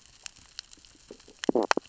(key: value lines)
label: biophony, stridulation
recorder: SoundTrap 600 or HydroMoth